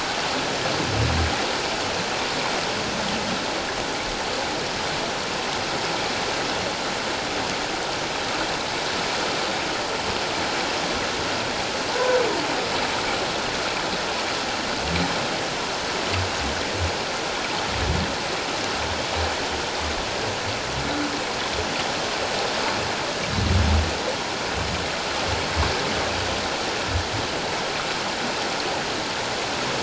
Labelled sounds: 11.9	12.2	humpback whale, 0.84 to 1.1 kHz

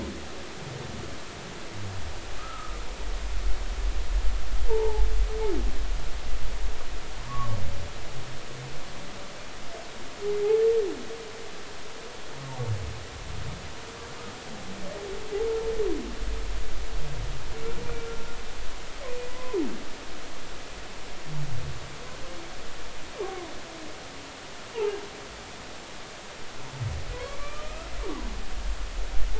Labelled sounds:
2.4	2.8	humpback whale, 1.2 to 1.4 kHz
4.7	5.0	humpback whale, 0.80 to 0.99 kHz
7.3	7.6	humpback whale, 1.0 to 1.2 kHz
19.3	19.6	humpback whale, 0.96 to 1.1 kHz
23.2	23.5	humpback whale, 0.93 to 1.2 kHz
24.7	25.0	humpback whale, 0.80 to 0.99 kHz
27.1	27.9	humpback whale, 0.96 to 2.4 kHz

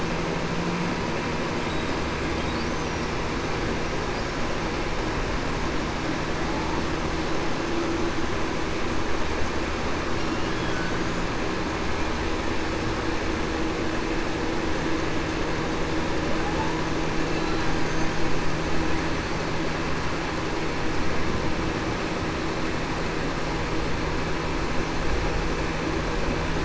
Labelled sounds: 6.4	6.8	humpback whale, 0.82 to 0.94 kHz

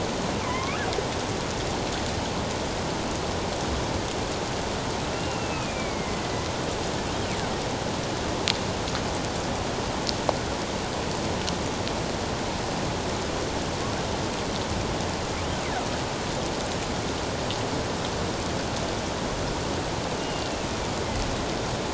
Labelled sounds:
0.4	0.8	killer whale, northern resident, A clan, AA subclan, A04 pod, 0.94 to 2.7 kHz
5.1	6.2	killer whale, northern resident, A clan, AA subclan, A04 pod, 2.0 to 2.8 kHz
20.2	20.5	killer whale, northern resident, A clan, AA subclan, A04 pod, 2.7 to 3.0 kHz
21.0	21.3	killer whale, northern resident, A clan, AA subclan, A04 pod, 2.0 to 2.2 kHz

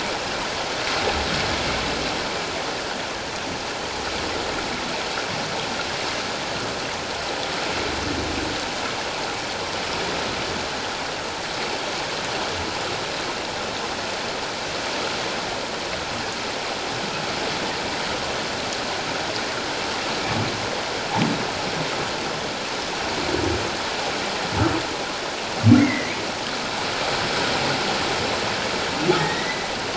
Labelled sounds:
25.8	26.2	humpback whale, 1.9 to 2.5 kHz
29.2	29.7	humpback whale, 1.8 to 4.1 kHz

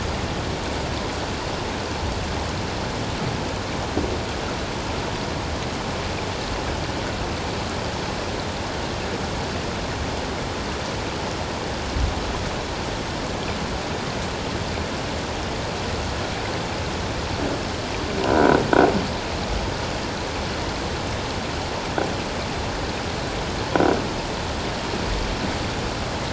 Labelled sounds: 18.3	18.6	croaking sound likely from a nearby submerged object, 1.3 to 1.6 kHz

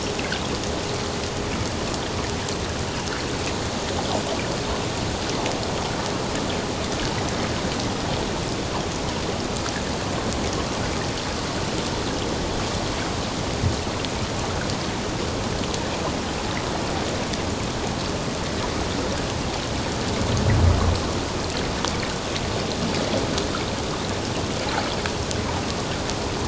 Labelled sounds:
1.5	1.7	vessel noise, 2.1 to 2.6 kHz

